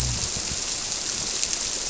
{"label": "biophony", "recorder": "SoundTrap 300"}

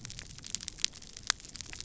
{"label": "biophony", "recorder": "SoundTrap 300"}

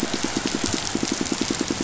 {"label": "biophony, pulse", "recorder": "SoundTrap 500"}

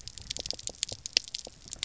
{"label": "biophony, pulse", "recorder": "SoundTrap 300"}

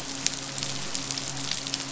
{"label": "biophony, midshipman", "recorder": "SoundTrap 500"}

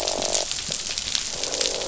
{"label": "biophony, croak", "recorder": "SoundTrap 500"}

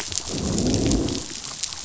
{"label": "biophony, growl", "recorder": "SoundTrap 500"}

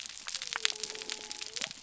{"label": "biophony", "recorder": "SoundTrap 300"}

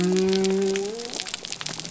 {"label": "biophony", "recorder": "SoundTrap 300"}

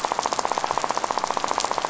{"label": "biophony, rattle", "recorder": "SoundTrap 500"}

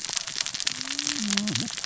{"label": "biophony, cascading saw", "recorder": "SoundTrap 600 or HydroMoth"}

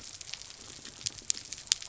{"label": "biophony", "recorder": "SoundTrap 300"}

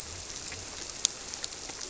{"label": "biophony", "recorder": "SoundTrap 300"}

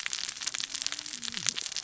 {"label": "biophony, cascading saw", "recorder": "SoundTrap 600 or HydroMoth"}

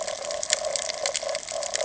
{"label": "ambient", "recorder": "HydroMoth"}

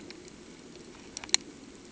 {"label": "anthrophony, boat engine", "recorder": "HydroMoth"}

